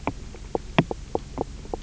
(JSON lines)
{"label": "biophony, knock croak", "recorder": "SoundTrap 300"}